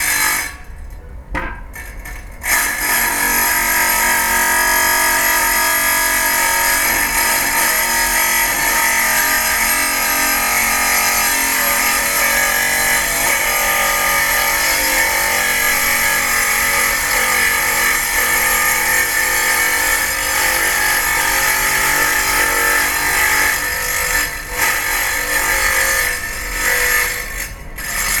Is someone using a tool?
yes